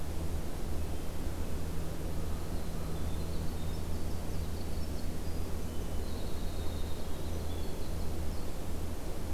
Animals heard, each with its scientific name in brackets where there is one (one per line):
American Crow (Corvus brachyrhynchos)
Hermit Thrush (Catharus guttatus)
Winter Wren (Troglodytes hiemalis)